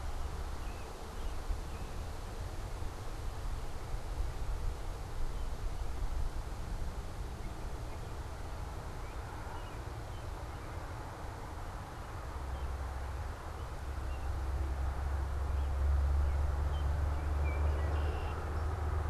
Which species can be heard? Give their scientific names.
Turdus migratorius, Agelaius phoeniceus